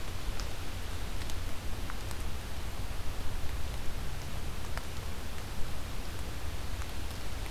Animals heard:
forest ambience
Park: Acadia National Park